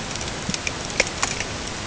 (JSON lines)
{"label": "ambient", "recorder": "HydroMoth"}